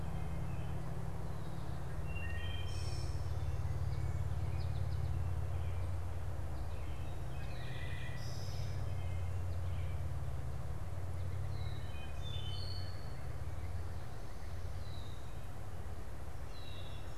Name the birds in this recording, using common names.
Wood Thrush, American Goldfinch, Red-winged Blackbird